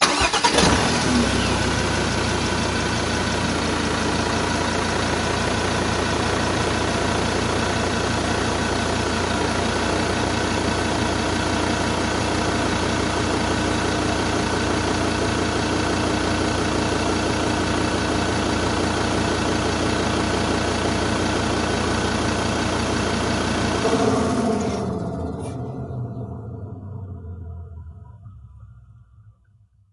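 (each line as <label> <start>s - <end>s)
An engine is starting. 0.0s - 1.4s
The engine idles with a continuous rumble. 1.3s - 23.8s
The sound of an engine gradually stopping fades away. 23.8s - 29.1s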